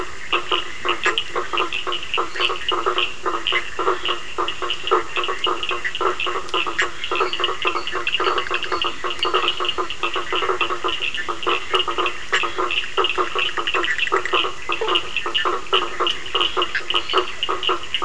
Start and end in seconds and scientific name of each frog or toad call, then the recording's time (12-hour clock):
0.0	18.0	Boana faber
0.0	18.0	Sphaenorhynchus surdus
0.8	18.0	Boana bischoffi
2.3	2.8	Dendropsophus minutus
6.9	9.6	Dendropsophus minutus
17.1	17.5	Dendropsophus minutus
9:15pm